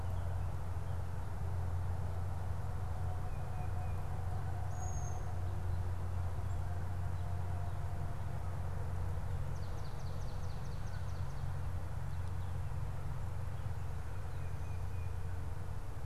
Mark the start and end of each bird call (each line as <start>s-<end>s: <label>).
3.1s-4.1s: Tufted Titmouse (Baeolophus bicolor)
4.7s-5.3s: unidentified bird
9.4s-11.4s: Swamp Sparrow (Melospiza georgiana)
14.2s-15.3s: Tufted Titmouse (Baeolophus bicolor)